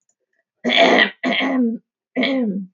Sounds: Throat clearing